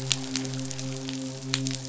{"label": "biophony, midshipman", "recorder": "SoundTrap 500"}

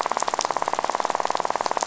{"label": "biophony, rattle", "recorder": "SoundTrap 500"}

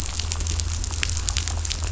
{"label": "anthrophony, boat engine", "recorder": "SoundTrap 500"}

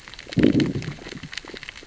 {"label": "biophony, growl", "recorder": "SoundTrap 600 or HydroMoth"}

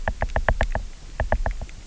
{"label": "biophony, knock", "recorder": "SoundTrap 300"}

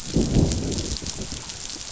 {"label": "biophony, growl", "recorder": "SoundTrap 500"}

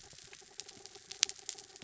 {"label": "anthrophony, mechanical", "recorder": "SoundTrap 300"}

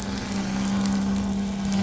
{"label": "anthrophony, boat engine", "recorder": "SoundTrap 500"}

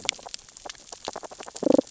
{"label": "biophony, damselfish", "recorder": "SoundTrap 600 or HydroMoth"}
{"label": "biophony, grazing", "recorder": "SoundTrap 600 or HydroMoth"}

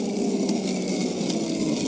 {"label": "anthrophony, boat engine", "recorder": "HydroMoth"}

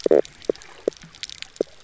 {"label": "biophony, stridulation", "recorder": "SoundTrap 300"}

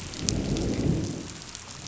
{"label": "biophony, growl", "recorder": "SoundTrap 500"}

